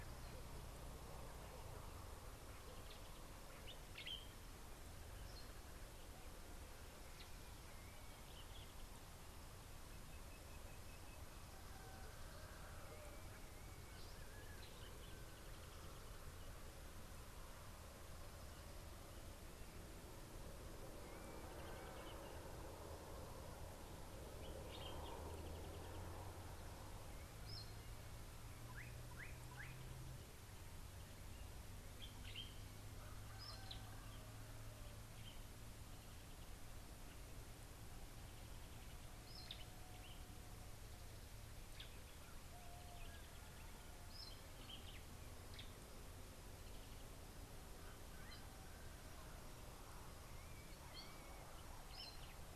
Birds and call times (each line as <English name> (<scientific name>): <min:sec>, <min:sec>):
Common Bulbul (Pycnonotus barbatus): 0:04.0, 0:24.7
Sulphur-breasted Bushshrike (Telophorus sulfureopectus): 0:10.7
Southern Fiscal (Lanius collaris): 0:21.2
Slate-colored Boubou (Laniarius funebris): 0:29.2